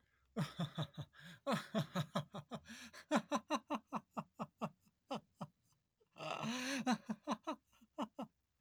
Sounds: Laughter